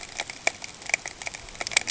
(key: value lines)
label: ambient
recorder: HydroMoth